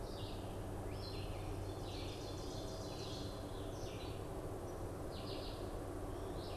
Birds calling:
Red-eyed Vireo (Vireo olivaceus), Ovenbird (Seiurus aurocapilla)

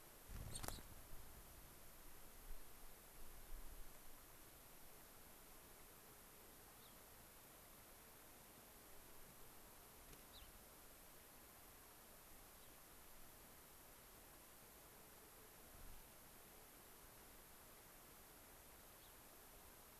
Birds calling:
Gray-crowned Rosy-Finch (Leucosticte tephrocotis)

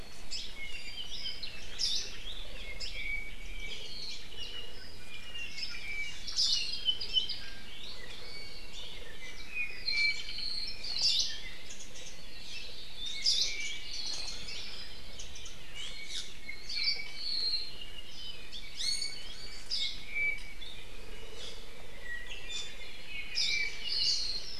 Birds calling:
Hawaii Creeper (Loxops mana), Apapane (Himatione sanguinea), Warbling White-eye (Zosterops japonicus), Iiwi (Drepanis coccinea), Hawaii Akepa (Loxops coccineus)

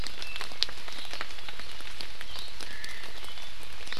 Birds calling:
Omao (Myadestes obscurus)

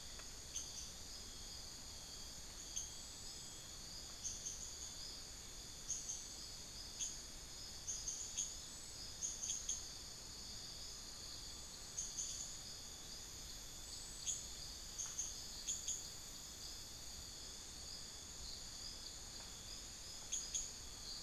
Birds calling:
unidentified bird, Tawny-bellied Screech-Owl (Megascops watsonii)

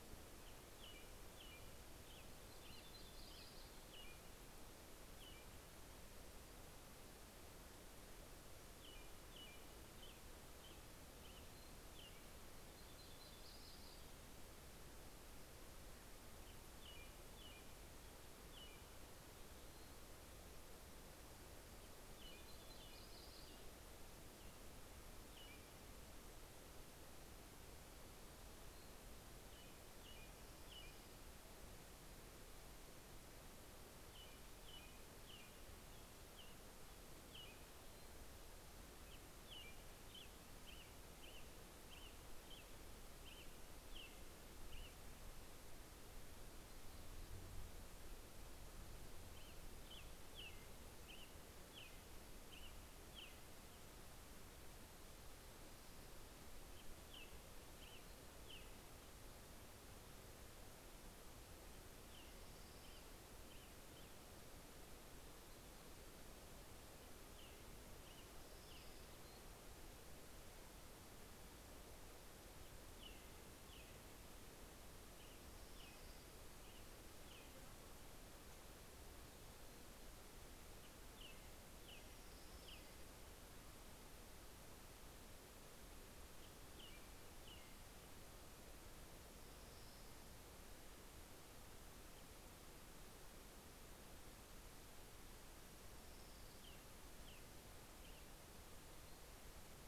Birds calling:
American Robin (Turdus migratorius), Orange-crowned Warbler (Leiothlypis celata), Yellow-rumped Warbler (Setophaga coronata)

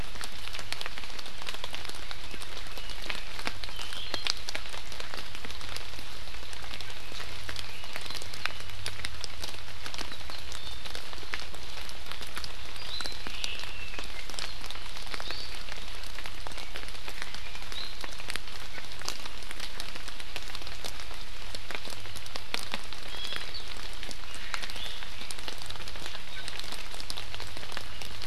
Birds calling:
Hawaii Amakihi (Chlorodrepanis virens), Iiwi (Drepanis coccinea), Omao (Myadestes obscurus), Warbling White-eye (Zosterops japonicus)

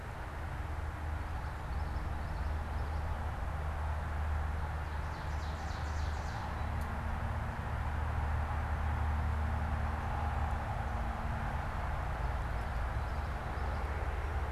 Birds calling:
Common Yellowthroat (Geothlypis trichas), Ovenbird (Seiurus aurocapilla)

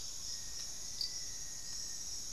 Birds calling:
Amazonian Motmot (Momotus momota), Black-faced Antthrush (Formicarius analis), Hauxwell's Thrush (Turdus hauxwelli)

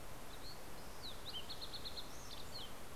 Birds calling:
Fox Sparrow (Passerella iliaca)

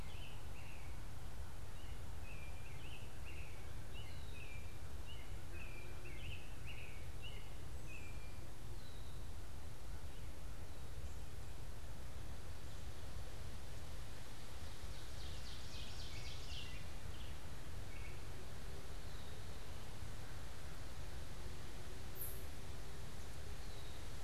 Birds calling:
Red-winged Blackbird (Agelaius phoeniceus), Ovenbird (Seiurus aurocapilla), American Robin (Turdus migratorius)

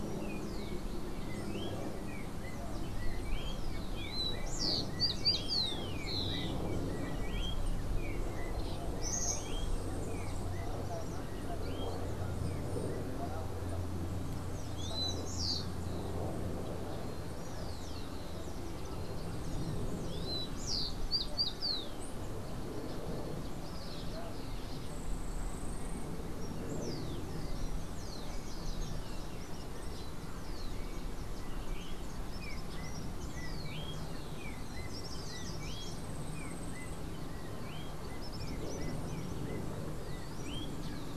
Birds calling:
Yellow-backed Oriole (Icterus chrysater), Rufous-collared Sparrow (Zonotrichia capensis), Yellow-faced Grassquit (Tiaris olivaceus), Common Tody-Flycatcher (Todirostrum cinereum), Tropical Kingbird (Tyrannus melancholicus)

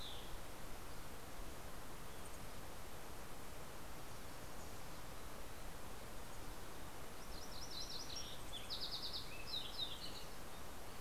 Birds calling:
Fox Sparrow (Passerella iliaca), MacGillivray's Warbler (Geothlypis tolmiei), Mountain Chickadee (Poecile gambeli)

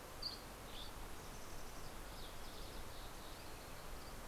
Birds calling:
Mountain Chickadee (Poecile gambeli), Dusky Flycatcher (Empidonax oberholseri)

